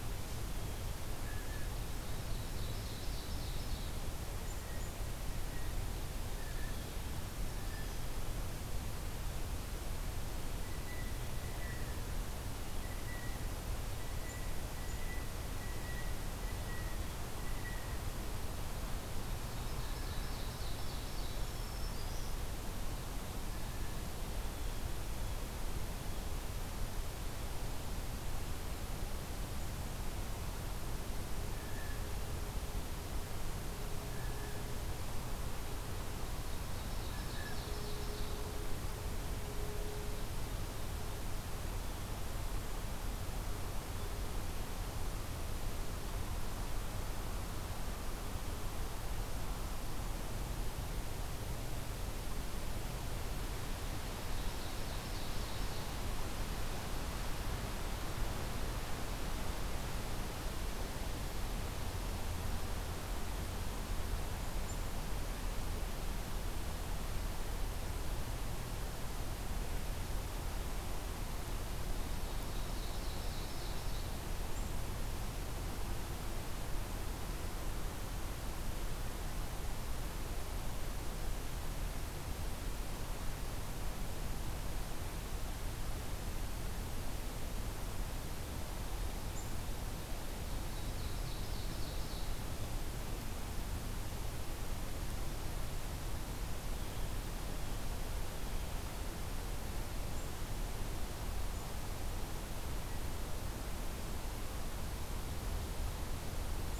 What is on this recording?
Blue Jay, Ovenbird, Black-throated Green Warbler